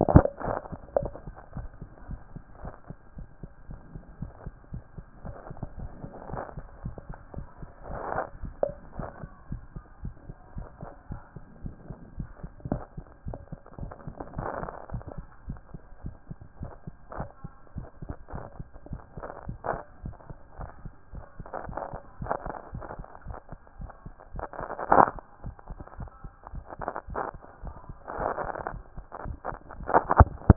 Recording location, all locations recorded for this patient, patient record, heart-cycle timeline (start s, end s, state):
tricuspid valve (TV)
aortic valve (AV)+pulmonary valve (PV)+tricuspid valve (TV)+mitral valve (MV)
#Age: Child
#Sex: Male
#Height: 158.0 cm
#Weight: 56.0 kg
#Pregnancy status: False
#Murmur: Absent
#Murmur locations: nan
#Most audible location: nan
#Systolic murmur timing: nan
#Systolic murmur shape: nan
#Systolic murmur grading: nan
#Systolic murmur pitch: nan
#Systolic murmur quality: nan
#Diastolic murmur timing: nan
#Diastolic murmur shape: nan
#Diastolic murmur grading: nan
#Diastolic murmur pitch: nan
#Diastolic murmur quality: nan
#Outcome: Abnormal
#Campaign: 2014 screening campaign
0.00	1.56	unannotated
1.56	1.68	S1
1.68	1.80	systole
1.80	1.88	S2
1.88	2.08	diastole
2.08	2.20	S1
2.20	2.34	systole
2.34	2.42	S2
2.42	2.62	diastole
2.62	2.74	S1
2.74	2.88	systole
2.88	2.96	S2
2.96	3.16	diastole
3.16	3.28	S1
3.28	3.42	systole
3.42	3.50	S2
3.50	3.68	diastole
3.68	3.80	S1
3.80	3.94	systole
3.94	4.02	S2
4.02	4.20	diastole
4.20	4.32	S1
4.32	4.44	systole
4.44	4.54	S2
4.54	4.72	diastole
4.72	4.84	S1
4.84	4.96	systole
4.96	5.06	S2
5.06	5.24	diastole
5.24	5.36	S1
5.36	5.48	systole
5.48	5.56	S2
5.56	5.78	diastole
5.78	5.90	S1
5.90	6.02	systole
6.02	6.10	S2
6.10	6.30	diastole
6.30	6.42	S1
6.42	6.56	systole
6.56	6.66	S2
6.66	6.84	diastole
6.84	6.96	S1
6.96	7.08	systole
7.08	7.18	S2
7.18	7.36	diastole
7.36	7.46	S1
7.46	7.60	systole
7.60	7.68	S2
7.68	7.88	diastole
7.88	8.02	S1
8.02	8.14	systole
8.14	8.24	S2
8.24	8.42	diastole
8.42	8.54	S1
8.54	8.64	systole
8.64	8.74	S2
8.74	8.98	diastole
8.98	9.10	S1
9.10	9.22	systole
9.22	9.30	S2
9.30	9.50	diastole
9.50	9.62	S1
9.62	9.74	systole
9.74	9.84	S2
9.84	10.02	diastole
10.02	10.14	S1
10.14	10.28	systole
10.28	10.36	S2
10.36	10.56	diastole
10.56	10.68	S1
10.68	10.82	systole
10.82	10.90	S2
10.90	11.10	diastole
11.10	11.20	S1
11.20	11.34	systole
11.34	11.44	S2
11.44	11.62	diastole
11.62	11.74	S1
11.74	11.88	systole
11.88	11.98	S2
11.98	12.18	diastole
12.18	12.30	S1
12.30	12.42	systole
12.42	12.50	S2
12.50	12.68	diastole
12.68	12.82	S1
12.82	12.96	systole
12.96	13.04	S2
13.04	13.26	diastole
13.26	13.38	S1
13.38	13.50	systole
13.50	13.60	S2
13.60	13.80	diastole
13.80	13.92	S1
13.92	14.06	systole
14.06	14.14	S2
14.14	14.36	diastole
14.36	14.50	S1
14.50	14.60	systole
14.60	14.70	S2
14.70	14.92	diastole
14.92	15.04	S1
15.04	15.16	systole
15.16	15.26	S2
15.26	15.48	diastole
15.48	15.60	S1
15.60	15.72	systole
15.72	15.80	S2
15.80	16.04	diastole
16.04	16.14	S1
16.14	16.28	systole
16.28	16.38	S2
16.38	16.60	diastole
16.60	16.72	S1
16.72	16.86	systole
16.86	16.94	S2
16.94	17.16	diastole
17.16	17.28	S1
17.28	17.42	systole
17.42	17.52	S2
17.52	17.76	diastole
17.76	17.88	S1
17.88	18.04	systole
18.04	18.14	S2
18.14	18.34	diastole
18.34	18.46	S1
18.46	18.58	systole
18.58	18.68	S2
18.68	18.90	diastole
18.90	19.02	S1
19.02	19.16	systole
19.16	19.24	S2
19.24	19.46	diastole
19.46	19.58	S1
19.58	19.70	systole
19.70	19.80	S2
19.80	20.04	diastole
20.04	20.16	S1
20.16	20.28	systole
20.28	20.36	S2
20.36	20.58	diastole
20.58	20.70	S1
20.70	20.84	systole
20.84	20.94	S2
20.94	21.14	diastole
21.14	21.24	S1
21.24	21.38	systole
21.38	21.46	S2
21.46	21.66	diastole
21.66	30.56	unannotated